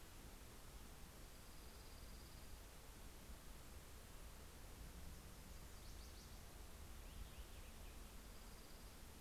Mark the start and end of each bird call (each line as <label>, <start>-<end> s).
Dark-eyed Junco (Junco hyemalis), 0.7-3.0 s
Dark-eyed Junco (Junco hyemalis), 4.5-6.9 s
Purple Finch (Haemorhous purpureus), 6.6-8.5 s
Dark-eyed Junco (Junco hyemalis), 7.5-9.0 s